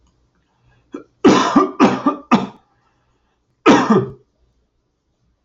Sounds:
Cough